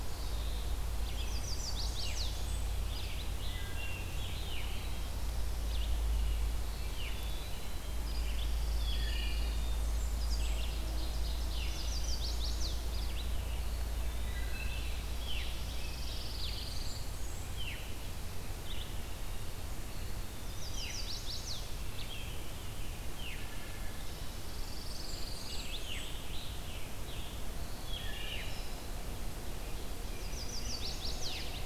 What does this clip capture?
Red-eyed Vireo, Blackburnian Warbler, Chestnut-sided Warbler, Veery, Wood Thrush, Pine Warbler, Ovenbird, Eastern Wood-Pewee, Scarlet Tanager